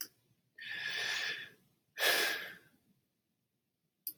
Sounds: Sigh